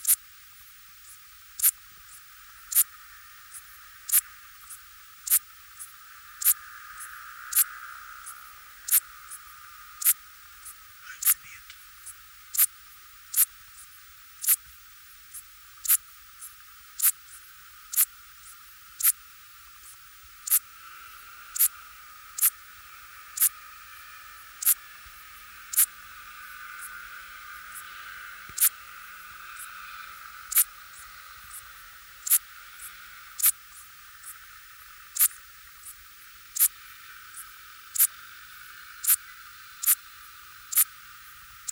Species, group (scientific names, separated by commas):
Eupholidoptera uvarovi, Orthoptera